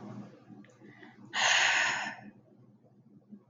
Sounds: Sigh